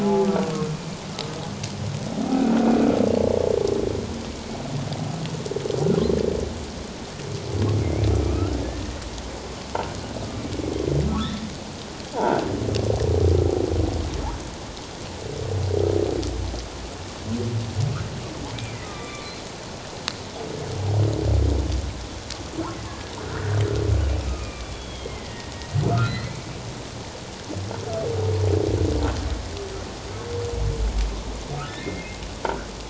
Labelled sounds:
0.0	0.7	humpback whale, 0.78 to 1.2 kHz
2.3	2.7	humpback whale, 1.2 to 1.6 kHz
8.2	8.5	humpback whale, 1.2 to 2.8 kHz
11.1	11.4	humpback whale, 1.2 to 1.5 kHz
12.1	12.4	croaking sound likely from a nearby submerged object, 0.78 to 1.0 kHz
18.8	19.3	humpback whale, 1.1 to 3.6 kHz
22.9	23.6	humpback whale, 1.3 to 1.9 kHz
24.3	25.5	humpback whale, 1.1 to 3.5 kHz
25.9	26.4	humpback whale, 1.2 to 4.4 kHz
31.7	32.2	humpback whale, 2.0 to 2.2 kHz

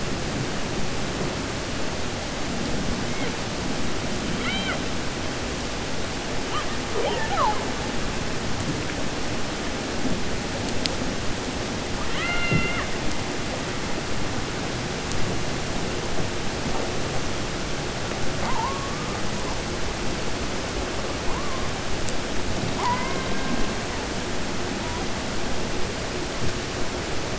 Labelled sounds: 4.3	4.8	killer whale, 0.64 to 4.6 kHz

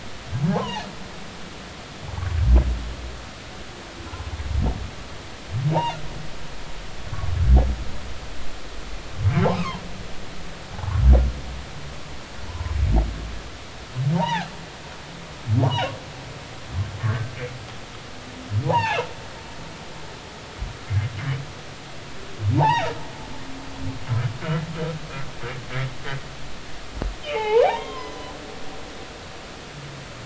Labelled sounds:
0.5	0.9	humpback whale, 0.80 to 1.1 kHz
7.1	7.3	humpback whale, 1.1 to 1.2 kHz
9.6	9.8	humpback whale, 0.80 to 1.3 kHz
10.7	11.0	humpback whale, 0.80 to 1.2 kHz
12.5	12.7	humpback whale, 0.86 to 1.1 kHz
14.1	14.5	humpback whale, 0.80 to 4.0 kHz
15.6	15.9	humpback whale, 0.80 to 3.1 kHz
17.0	17.3	humpback whale, 1.5 to 1.9 kHz
18.6	19.0	humpback whale, 0.80 to 3.9 kHz
22.6	22.9	humpback whale, 0.80 to 3.0 kHz
27.2	28.3	humpback whale, 0.80 to 3.3 kHz

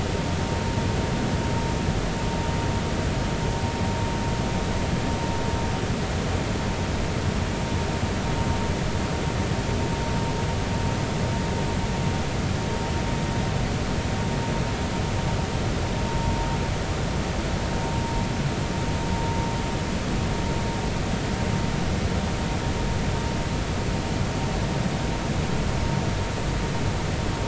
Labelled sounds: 16.1	16.4	vessel noise, 0.90 to 0.96 kHz

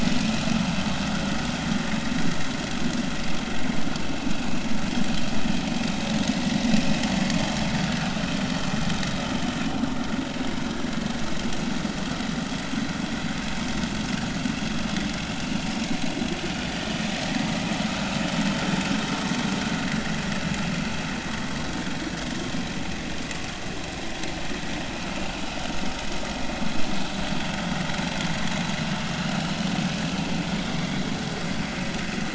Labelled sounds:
5.8	6.8	vessel noise, 3.6 to 5.0 kHz
16.8	17.1	vessel noise, 2.9 to 3.2 kHz

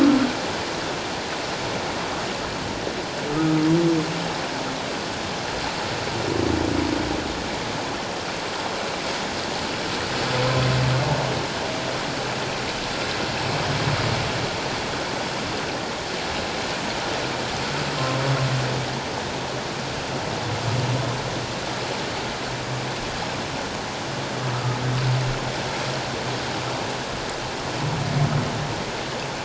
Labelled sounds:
3.3	3.6	humpback whale, 1.2 to 1.3 kHz

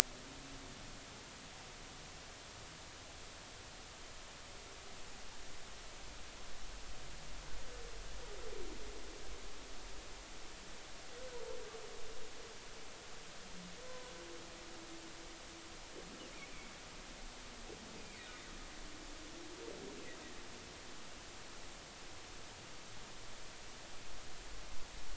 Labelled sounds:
13.9	14.1	humpback whale, 0.96 to 1.1 kHz

